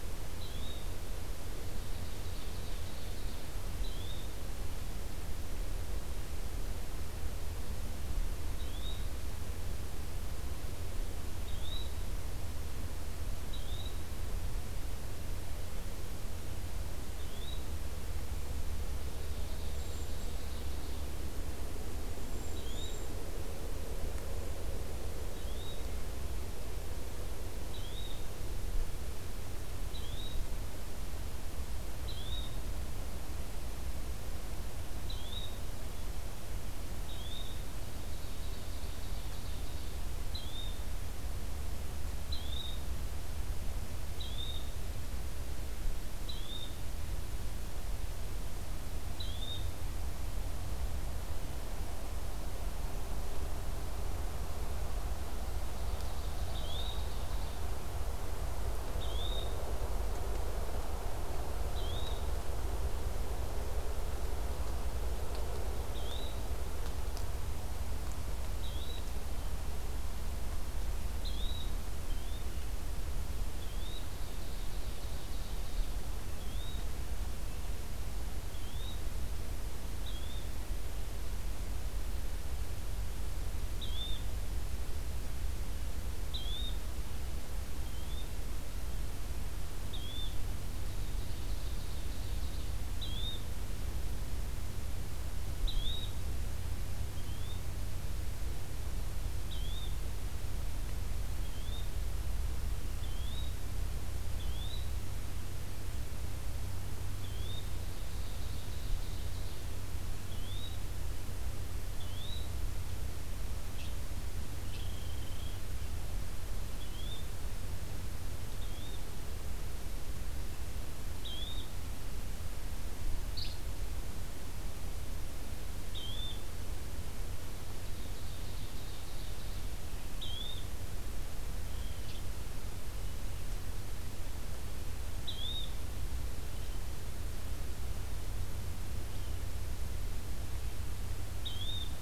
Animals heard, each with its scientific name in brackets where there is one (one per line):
Ovenbird (Seiurus aurocapilla)
Cedar Waxwing (Bombycilla cedrorum)
Yellow-bellied Flycatcher (Empidonax flaviventris)